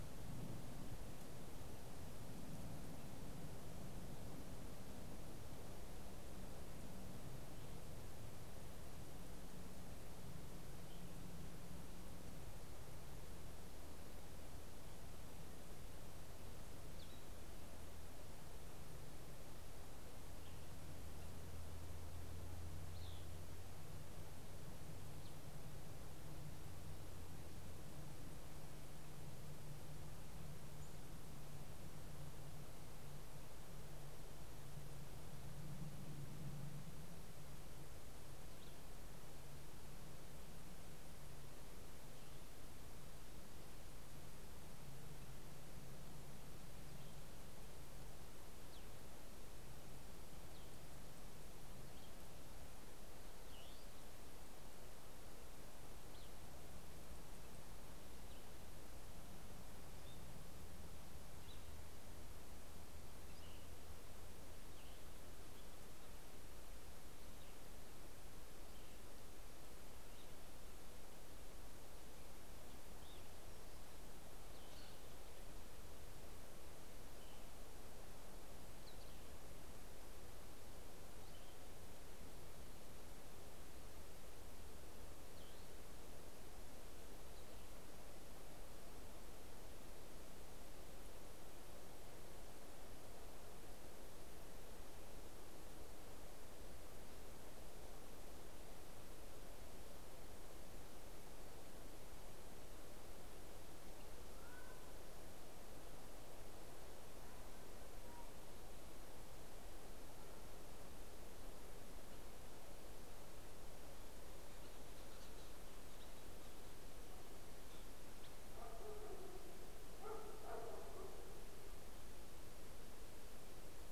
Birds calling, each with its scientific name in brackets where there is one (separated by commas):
Common Raven (Corvus corax), White-headed Woodpecker (Dryobates albolarvatus), Cassin's Vireo (Vireo cassinii)